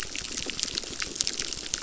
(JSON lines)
{"label": "biophony, crackle", "recorder": "SoundTrap 600"}